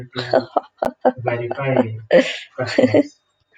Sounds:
Laughter